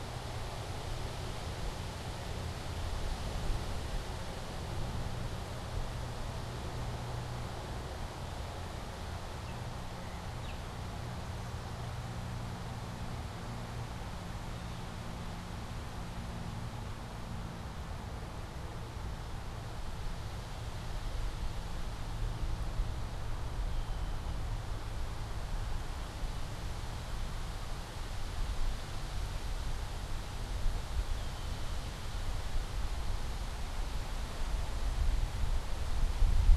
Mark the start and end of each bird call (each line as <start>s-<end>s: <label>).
9.2s-10.9s: Baltimore Oriole (Icterus galbula)
23.6s-24.6s: Red-winged Blackbird (Agelaius phoeniceus)
31.0s-31.9s: Red-winged Blackbird (Agelaius phoeniceus)